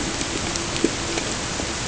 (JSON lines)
{"label": "ambient", "recorder": "HydroMoth"}